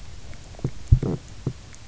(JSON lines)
{"label": "biophony, stridulation", "recorder": "SoundTrap 300"}